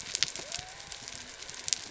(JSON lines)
{"label": "biophony", "recorder": "SoundTrap 300"}